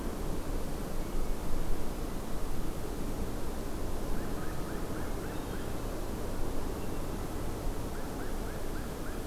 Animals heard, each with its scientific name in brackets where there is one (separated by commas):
Hermit Thrush (Catharus guttatus), American Crow (Corvus brachyrhynchos)